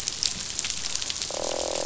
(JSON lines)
{"label": "biophony, croak", "recorder": "SoundTrap 500"}